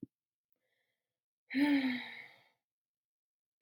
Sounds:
Sigh